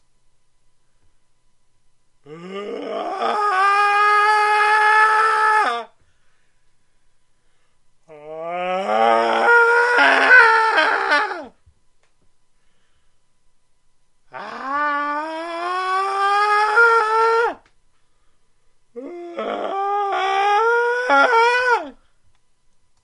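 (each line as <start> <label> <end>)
2.5 Men screaming loudly. 6.6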